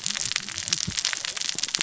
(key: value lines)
label: biophony, cascading saw
recorder: SoundTrap 600 or HydroMoth